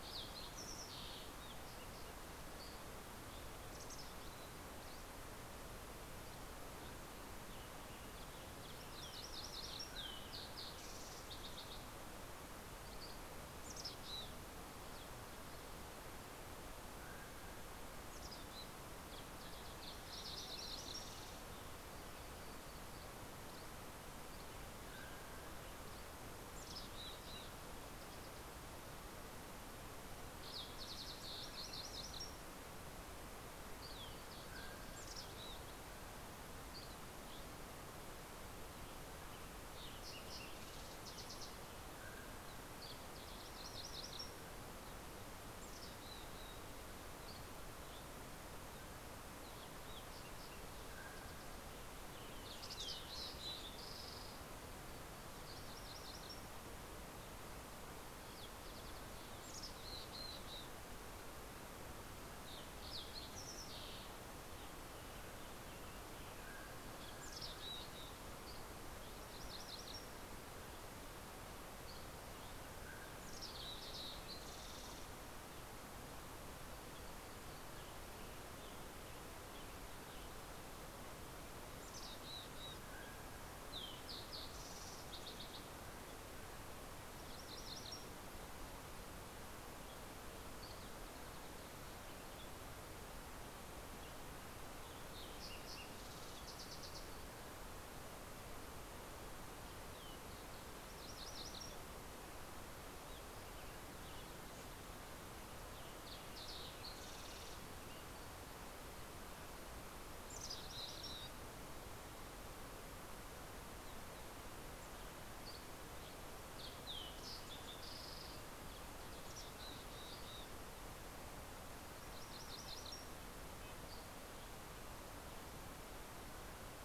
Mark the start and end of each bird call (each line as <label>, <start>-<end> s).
Fox Sparrow (Passerella iliaca), 0.0-2.6 s
Mountain Chickadee (Poecile gambeli), 3.5-5.7 s
Western Tanager (Piranga ludoviciana), 6.5-9.5 s
MacGillivray's Warbler (Geothlypis tolmiei), 8.2-9.9 s
Fox Sparrow (Passerella iliaca), 9.3-12.9 s
Mountain Quail (Oreortyx pictus), 9.5-10.8 s
Dusky Flycatcher (Empidonax oberholseri), 12.6-13.2 s
Mountain Chickadee (Poecile gambeli), 13.3-14.4 s
Mountain Quail (Oreortyx pictus), 16.6-18.2 s
Mountain Chickadee (Poecile gambeli), 17.6-19.1 s
Fox Sparrow (Passerella iliaca), 18.9-22.3 s
Western Tanager (Piranga ludoviciana), 19.2-22.5 s
MacGillivray's Warbler (Geothlypis tolmiei), 19.7-21.1 s
Dusky Flycatcher (Empidonax oberholseri), 22.1-26.3 s
Mountain Quail (Oreortyx pictus), 24.5-26.0 s
Mountain Chickadee (Poecile gambeli), 26.1-27.5 s
Fox Sparrow (Passerella iliaca), 29.6-31.5 s
MacGillivray's Warbler (Geothlypis tolmiei), 31.2-32.6 s
Mountain Quail (Oreortyx pictus), 34.2-36.0 s
Mountain Chickadee (Poecile gambeli), 34.6-36.3 s
Dusky Flycatcher (Empidonax oberholseri), 36.4-37.9 s
Fox Sparrow (Passerella iliaca), 38.7-41.5 s
Western Tanager (Piranga ludoviciana), 38.9-42.1 s
Mountain Quail (Oreortyx pictus), 41.6-43.0 s
MacGillivray's Warbler (Geothlypis tolmiei), 43.2-44.8 s
Mountain Chickadee (Poecile gambeli), 45.0-46.8 s
Dusky Flycatcher (Empidonax oberholseri), 46.9-48.6 s
Mountain Quail (Oreortyx pictus), 48.2-49.4 s
Fox Sparrow (Passerella iliaca), 49.0-51.5 s
Mountain Quail (Oreortyx pictus), 50.4-51.7 s
Fox Sparrow (Passerella iliaca), 51.8-54.5 s
Mountain Chickadee (Poecile gambeli), 52.2-53.6 s
MacGillivray's Warbler (Geothlypis tolmiei), 55.3-56.7 s
Fox Sparrow (Passerella iliaca), 57.6-60.2 s
Mountain Chickadee (Poecile gambeli), 59.3-61.1 s
Fox Sparrow (Passerella iliaca), 61.7-64.7 s
Western Tanager (Piranga ludoviciana), 62.6-66.8 s
Mountain Quail (Oreortyx pictus), 65.9-67.5 s
Mountain Chickadee (Poecile gambeli), 66.9-68.3 s
MacGillivray's Warbler (Geothlypis tolmiei), 69.1-70.4 s
Dusky Flycatcher (Empidonax oberholseri), 71.4-72.8 s
Mountain Quail (Oreortyx pictus), 72.3-74.4 s
Mountain Chickadee (Poecile gambeli), 73.0-74.1 s
Fox Sparrow (Passerella iliaca), 73.1-76.0 s
Western Tanager (Piranga ludoviciana), 76.7-80.7 s
Mountain Chickadee (Poecile gambeli), 81.8-83.1 s
Mountain Quail (Oreortyx pictus), 82.3-84.2 s
Fox Sparrow (Passerella iliaca), 83.7-86.0 s
MacGillivray's Warbler (Geothlypis tolmiei), 87.0-88.6 s
Western Tanager (Piranga ludoviciana), 92.1-96.6 s
Fox Sparrow (Passerella iliaca), 94.2-97.7 s
Fox Sparrow (Passerella iliaca), 98.5-100.7 s
MacGillivray's Warbler (Geothlypis tolmiei), 100.6-102.0 s
Western Tanager (Piranga ludoviciana), 102.7-104.5 s
Western Tanager (Piranga ludoviciana), 105.1-108.7 s
Fox Sparrow (Passerella iliaca), 105.2-108.0 s
MacGillivray's Warbler (Geothlypis tolmiei), 109.9-111.5 s
Mountain Chickadee (Poecile gambeli), 110.2-111.5 s
Dusky Flycatcher (Empidonax oberholseri), 114.3-116.3 s
Fox Sparrow (Passerella iliaca), 116.4-118.8 s
Mountain Chickadee (Poecile gambeli), 118.8-120.5 s
Red-breasted Nuthatch (Sitta canadensis), 121.1-124.1 s
MacGillivray's Warbler (Geothlypis tolmiei), 121.6-123.2 s
Dusky Flycatcher (Empidonax oberholseri), 123.5-125.2 s